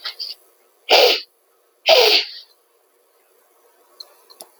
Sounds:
Sniff